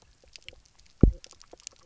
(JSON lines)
{"label": "biophony, double pulse", "recorder": "SoundTrap 300"}
{"label": "biophony, knock croak", "recorder": "SoundTrap 300"}